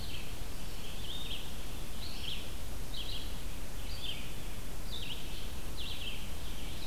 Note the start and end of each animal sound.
[0.00, 6.86] Red-eyed Vireo (Vireo olivaceus)

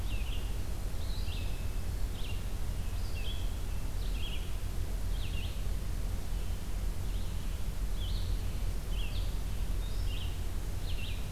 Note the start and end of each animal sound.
[0.00, 11.32] Red-eyed Vireo (Vireo olivaceus)

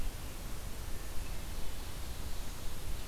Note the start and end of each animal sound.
[1.36, 3.07] Ovenbird (Seiurus aurocapilla)

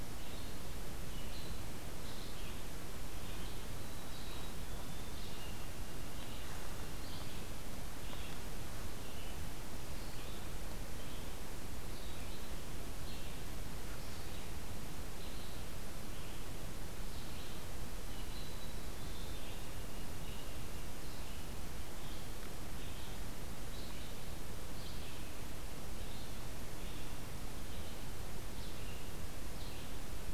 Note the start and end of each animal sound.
[0.00, 30.34] Red-eyed Vireo (Vireo olivaceus)
[3.69, 7.60] White-throated Sparrow (Zonotrichia albicollis)
[18.27, 21.03] White-throated Sparrow (Zonotrichia albicollis)

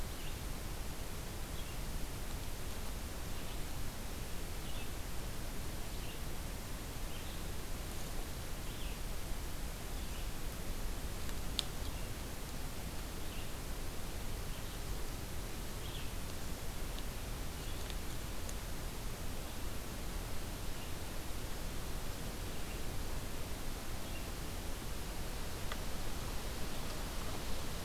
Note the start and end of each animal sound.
[0.00, 24.64] Red-eyed Vireo (Vireo olivaceus)

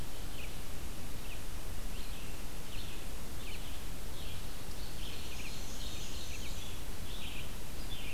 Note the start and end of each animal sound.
[0.00, 8.13] Red-eyed Vireo (Vireo olivaceus)
[5.17, 6.76] Black-and-white Warbler (Mniotilta varia)

